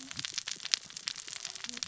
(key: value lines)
label: biophony, cascading saw
recorder: SoundTrap 600 or HydroMoth